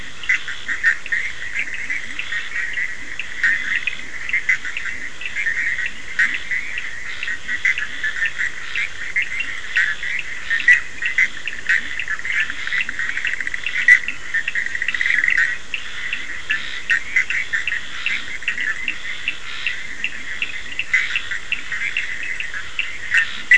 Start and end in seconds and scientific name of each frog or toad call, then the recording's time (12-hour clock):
0.0	2.3	Leptodactylus latrans
0.0	23.5	Boana bischoffi
0.0	23.5	Scinax perereca
0.0	23.5	Sphaenorhynchus surdus
2.9	8.1	Leptodactylus latrans
9.4	23.5	Leptodactylus latrans
14.0	15.8	Dendropsophus nahdereri
12:45am